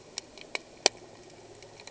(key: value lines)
label: anthrophony, boat engine
recorder: HydroMoth